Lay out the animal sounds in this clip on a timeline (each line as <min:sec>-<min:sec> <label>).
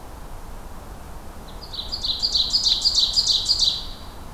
0:01.5-0:04.0 Ovenbird (Seiurus aurocapilla)
0:03.6-0:04.2 Hermit Thrush (Catharus guttatus)